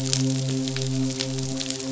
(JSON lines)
{"label": "biophony, midshipman", "recorder": "SoundTrap 500"}